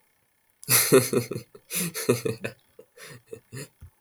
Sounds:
Laughter